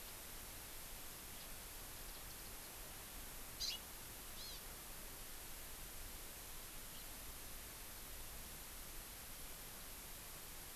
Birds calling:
Hawaii Amakihi (Chlorodrepanis virens), Warbling White-eye (Zosterops japonicus), House Finch (Haemorhous mexicanus)

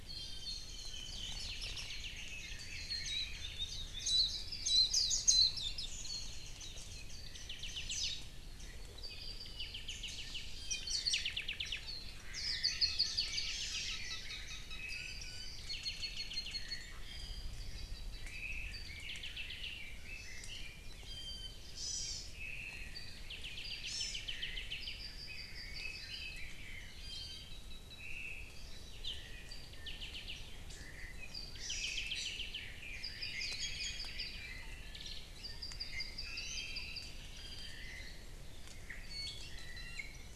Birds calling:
Red-billed Leiothrix (Leiothrix lutea), Apapane (Himatione sanguinea), Warbling White-eye (Zosterops japonicus), Iiwi (Drepanis coccinea), Hawaii Amakihi (Chlorodrepanis virens), Chinese Hwamei (Garrulax canorus), Omao (Myadestes obscurus)

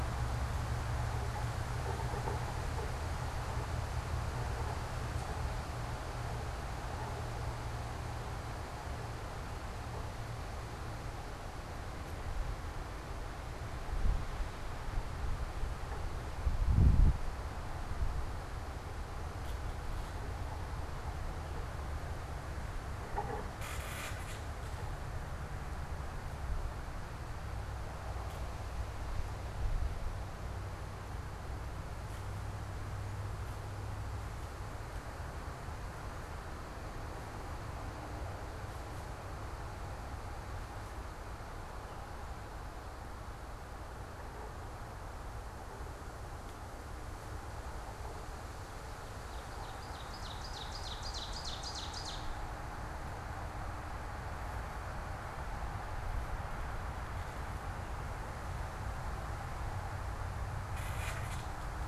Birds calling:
Ovenbird (Seiurus aurocapilla)

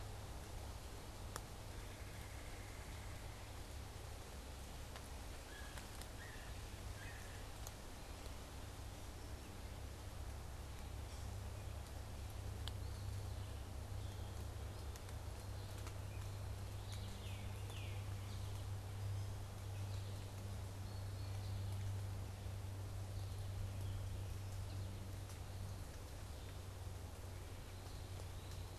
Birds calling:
Eastern Wood-Pewee (Contopus virens), Tufted Titmouse (Baeolophus bicolor), unidentified bird, American Goldfinch (Spinus tristis), Yellow-bellied Sapsucker (Sphyrapicus varius)

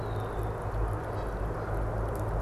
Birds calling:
Canada Goose (Branta canadensis), Red-winged Blackbird (Agelaius phoeniceus)

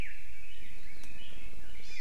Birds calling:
Red-billed Leiothrix (Leiothrix lutea)

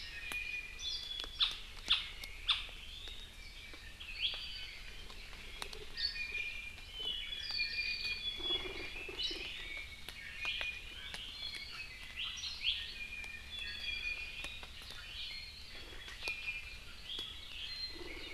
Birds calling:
Iiwi (Drepanis coccinea), Apapane (Himatione sanguinea)

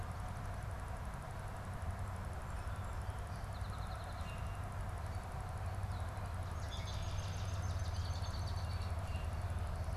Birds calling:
Red-winged Blackbird (Agelaius phoeniceus), Swamp Sparrow (Melospiza georgiana), Song Sparrow (Melospiza melodia)

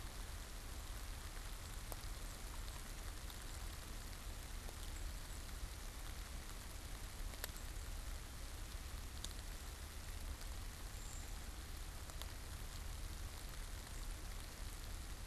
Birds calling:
unidentified bird, Brown Creeper (Certhia americana)

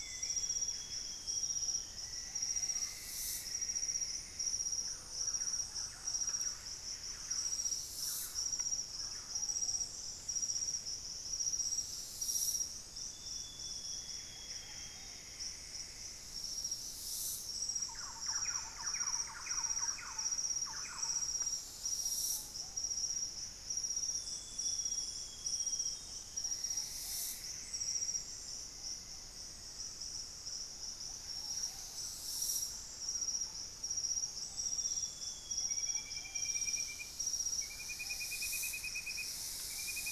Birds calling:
Black-faced Antthrush (Formicarius analis), Golden-crowned Spadebill (Platyrinchus coronatus), Ruddy Pigeon (Patagioenas subvinacea), Buff-breasted Wren (Cantorchilus leucotis), Hauxwell's Thrush (Turdus hauxwelli), unidentified bird, Screaming Piha (Lipaugus vociferans), Plumbeous Antbird (Myrmelastes hyperythrus), Thrush-like Wren (Campylorhynchus turdinus), Amazonian Grosbeak (Cyanoloxia rothschildii)

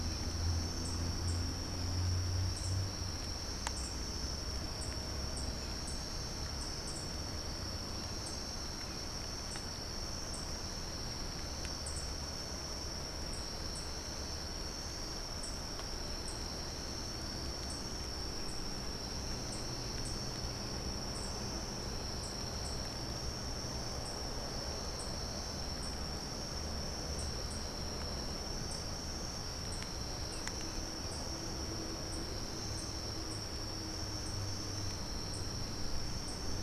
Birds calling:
unidentified bird

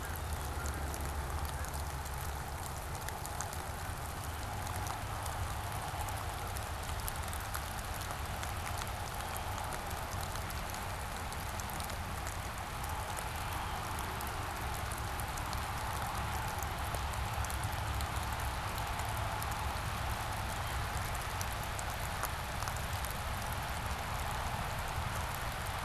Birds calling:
Blue Jay (Cyanocitta cristata), Canada Goose (Branta canadensis)

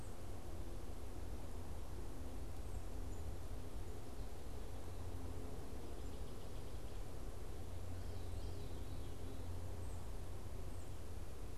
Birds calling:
Tufted Titmouse (Baeolophus bicolor), Veery (Catharus fuscescens)

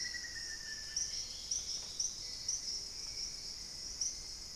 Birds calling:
Black-faced Antthrush (Formicarius analis), Hauxwell's Thrush (Turdus hauxwelli), Dusky-throated Antshrike (Thamnomanes ardesiacus)

